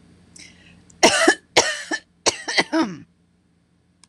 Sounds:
Cough